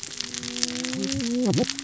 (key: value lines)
label: biophony, cascading saw
recorder: SoundTrap 600 or HydroMoth